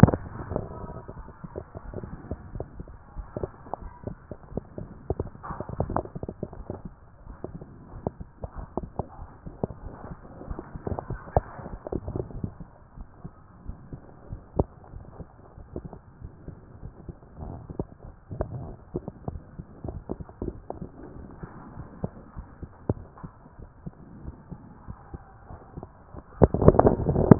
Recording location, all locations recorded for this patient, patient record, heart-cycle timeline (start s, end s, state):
aortic valve (AV)
aortic valve (AV)+pulmonary valve (PV)+tricuspid valve (TV)+mitral valve (MV)
#Age: Child
#Sex: Female
#Height: nan
#Weight: nan
#Pregnancy status: False
#Murmur: Absent
#Murmur locations: nan
#Most audible location: nan
#Systolic murmur timing: nan
#Systolic murmur shape: nan
#Systolic murmur grading: nan
#Systolic murmur pitch: nan
#Systolic murmur quality: nan
#Diastolic murmur timing: nan
#Diastolic murmur shape: nan
#Diastolic murmur grading: nan
#Diastolic murmur pitch: nan
#Diastolic murmur quality: nan
#Outcome: Abnormal
#Campaign: 2014 screening campaign
0.00	12.12	unannotated
12.12	12.24	S1
12.24	12.42	systole
12.42	12.52	S2
12.52	12.98	diastole
12.98	13.08	S1
13.08	13.24	systole
13.24	13.32	S2
13.32	13.68	diastole
13.68	13.78	S1
13.78	13.90	systole
13.90	13.98	S2
13.98	14.30	diastole
14.30	14.40	S1
14.40	14.56	systole
14.56	14.68	S2
14.68	14.96	diastole
14.96	15.06	S1
15.06	15.20	systole
15.20	15.28	S2
15.28	15.58	diastole
15.58	27.39	unannotated